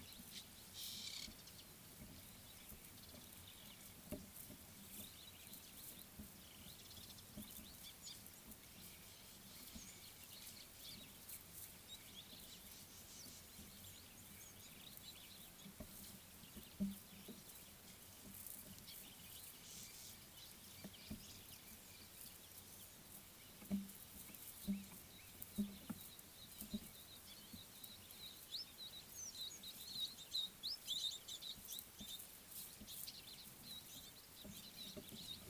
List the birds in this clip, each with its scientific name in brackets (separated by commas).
Ring-necked Dove (Streptopelia capicola), Red-billed Firefinch (Lagonosticta senegala)